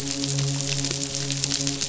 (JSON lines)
{"label": "biophony, midshipman", "recorder": "SoundTrap 500"}